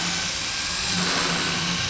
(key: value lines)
label: anthrophony, boat engine
recorder: SoundTrap 500